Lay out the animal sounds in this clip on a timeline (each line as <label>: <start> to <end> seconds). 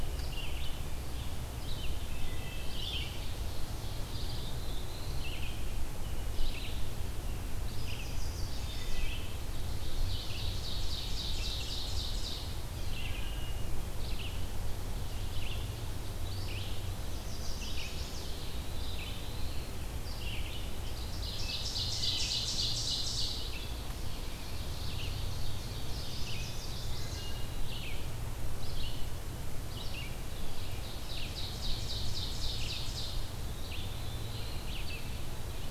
Red-eyed Vireo (Vireo olivaceus): 0.0 to 35.7 seconds
Wood Thrush (Hylocichla mustelina): 2.0 to 2.8 seconds
Ovenbird (Seiurus aurocapilla): 2.6 to 4.5 seconds
Black-throated Blue Warbler (Setophaga caerulescens): 4.0 to 5.5 seconds
Chestnut-sided Warbler (Setophaga pensylvanica): 7.7 to 9.1 seconds
Wood Thrush (Hylocichla mustelina): 8.6 to 9.2 seconds
Ovenbird (Seiurus aurocapilla): 9.5 to 12.6 seconds
Wood Thrush (Hylocichla mustelina): 13.0 to 13.7 seconds
Chestnut-sided Warbler (Setophaga pensylvanica): 17.0 to 18.6 seconds
Black-throated Blue Warbler (Setophaga caerulescens): 18.3 to 19.9 seconds
Ovenbird (Seiurus aurocapilla): 20.9 to 23.5 seconds
Wood Thrush (Hylocichla mustelina): 21.6 to 22.5 seconds
Ovenbird (Seiurus aurocapilla): 24.2 to 26.0 seconds
Chestnut-sided Warbler (Setophaga pensylvanica): 25.9 to 27.4 seconds
Ovenbird (Seiurus aurocapilla): 30.7 to 33.3 seconds
Black-throated Blue Warbler (Setophaga caerulescens): 33.4 to 34.7 seconds